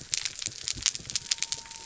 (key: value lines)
label: biophony
recorder: SoundTrap 300